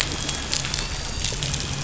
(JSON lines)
{"label": "anthrophony, boat engine", "recorder": "SoundTrap 500"}